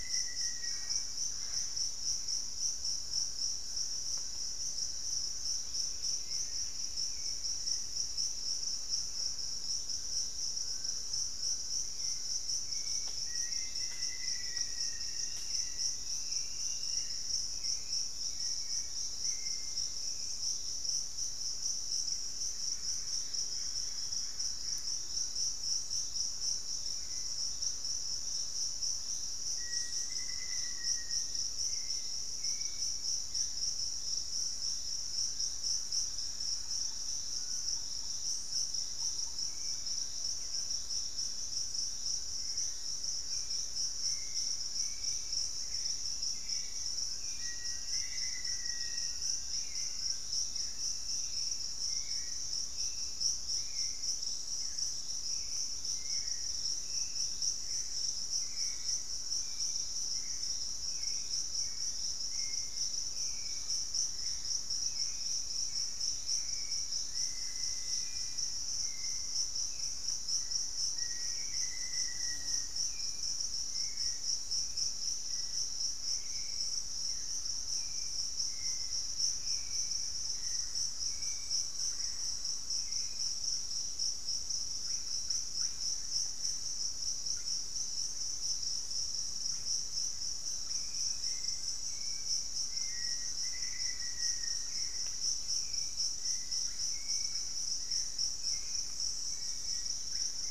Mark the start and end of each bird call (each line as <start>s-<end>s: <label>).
0.0s-1.6s: Black-faced Antthrush (Formicarius analis)
0.0s-1.9s: Mealy Parrot (Amazona farinosa)
0.0s-2.1s: Hauxwell's Thrush (Turdus hauxwelli)
2.3s-5.9s: Thrush-like Wren (Campylorhynchus turdinus)
5.8s-7.2s: Pygmy Antwren (Myrmotherula brachyura)
6.0s-20.9s: Hauxwell's Thrush (Turdus hauxwelli)
8.3s-12.7s: Fasciated Antshrike (Cymbilaimus lineatus)
12.9s-15.7s: Black-faced Antthrush (Formicarius analis)
13.4s-17.4s: unidentified bird
21.4s-25.8s: Fasciated Antshrike (Cymbilaimus lineatus)
22.1s-25.6s: Mealy Parrot (Amazona farinosa)
29.2s-32.0s: Black-faced Antthrush (Formicarius analis)
31.5s-33.8s: Hauxwell's Thrush (Turdus hauxwelli)
34.1s-50.4s: Fasciated Antshrike (Cymbilaimus lineatus)
35.6s-40.6s: Thrush-like Wren (Campylorhynchus turdinus)
39.3s-83.6s: Hauxwell's Thrush (Turdus hauxwelli)
46.9s-49.6s: Black-faced Antthrush (Formicarius analis)
56.8s-60.4s: Fasciated Antshrike (Cymbilaimus lineatus)
60.2s-72.7s: Thrush-like Wren (Campylorhynchus turdinus)
66.9s-68.8s: White-throated Woodpecker (Piculus leucolaemus)
70.3s-73.0s: Black-faced Antthrush (Formicarius analis)
78.5s-82.8s: Thrush-like Wren (Campylorhynchus turdinus)
84.7s-100.5s: Russet-backed Oropendola (Psarocolius angustifrons)
90.6s-100.5s: Hauxwell's Thrush (Turdus hauxwelli)
92.4s-95.2s: Black-faced Antthrush (Formicarius analis)